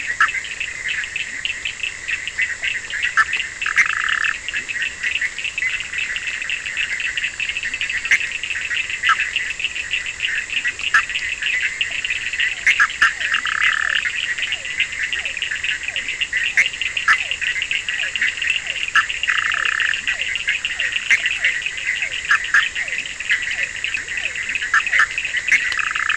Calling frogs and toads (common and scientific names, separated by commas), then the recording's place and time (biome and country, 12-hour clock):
Leptodactylus latrans, Bischoff's tree frog (Boana bischoffi), Cochran's lime tree frog (Sphaenorhynchus surdus), two-colored oval frog (Elachistocleis bicolor), Physalaemus cuvieri
Atlantic Forest, Brazil, 1:30am